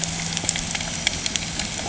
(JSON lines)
{"label": "anthrophony, boat engine", "recorder": "HydroMoth"}